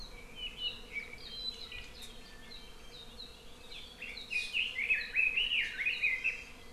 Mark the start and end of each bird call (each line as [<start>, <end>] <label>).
[0.00, 3.00] Apapane (Himatione sanguinea)
[3.70, 6.70] Red-billed Leiothrix (Leiothrix lutea)
[6.20, 6.60] Hawaii Amakihi (Chlorodrepanis virens)